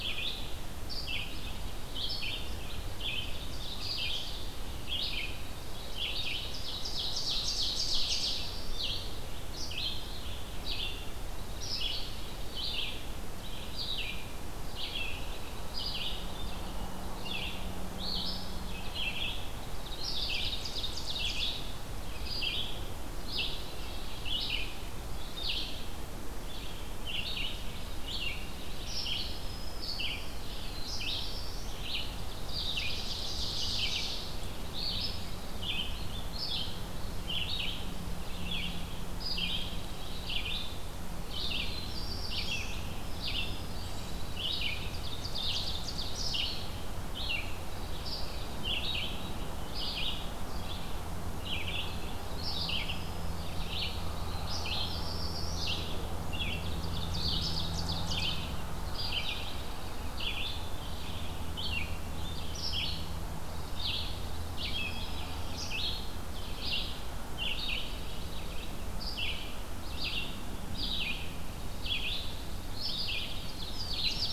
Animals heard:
Ovenbird (Seiurus aurocapilla)
Dark-eyed Junco (Junco hyemalis)
Black-throated Green Warbler (Setophaga virens)
Red-eyed Vireo (Vireo olivaceus)
Black-throated Blue Warbler (Setophaga caerulescens)

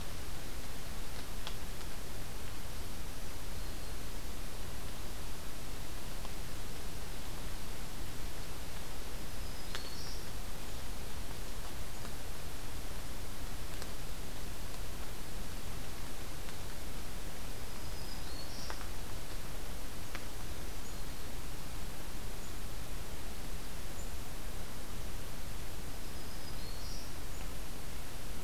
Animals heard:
Black-throated Green Warbler (Setophaga virens)

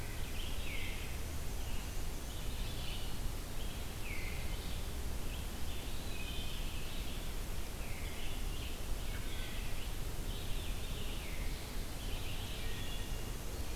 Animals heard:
Wood Thrush (Hylocichla mustelina)
Black-and-white Warbler (Mniotilta varia)
Red-eyed Vireo (Vireo olivaceus)

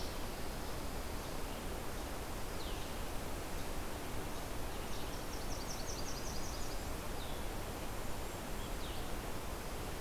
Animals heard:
Blue-headed Vireo (Vireo solitarius)
Yellow-rumped Warbler (Setophaga coronata)
Golden-crowned Kinglet (Regulus satrapa)

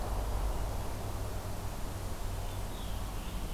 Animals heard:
American Robin (Turdus migratorius)

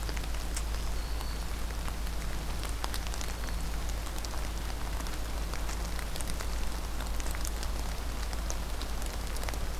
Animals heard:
Black-throated Green Warbler (Setophaga virens)

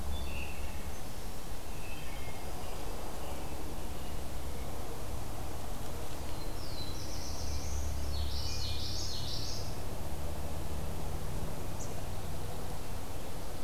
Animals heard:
American Robin (Turdus migratorius)
Wood Thrush (Hylocichla mustelina)
Black-throated Blue Warbler (Setophaga caerulescens)
Common Yellowthroat (Geothlypis trichas)
Dark-eyed Junco (Junco hyemalis)

